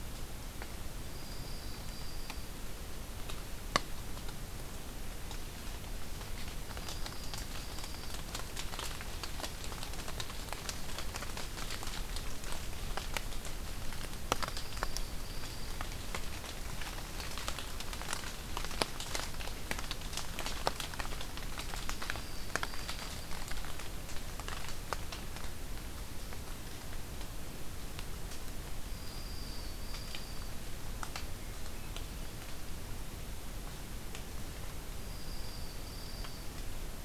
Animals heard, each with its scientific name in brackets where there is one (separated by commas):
Swainson's Thrush (Catharus ustulatus), Dark-eyed Junco (Junco hyemalis)